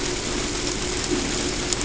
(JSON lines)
{"label": "ambient", "recorder": "HydroMoth"}